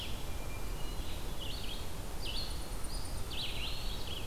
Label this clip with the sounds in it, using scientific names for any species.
Vireo olivaceus, Catharus guttatus, Setophaga striata, Contopus virens